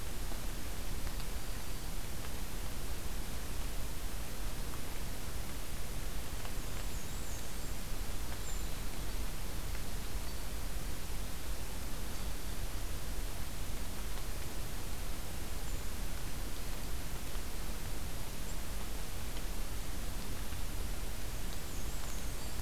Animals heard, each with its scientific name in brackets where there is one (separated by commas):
Brown Creeper (Certhia americana), Black-and-white Warbler (Mniotilta varia), Black-throated Green Warbler (Setophaga virens)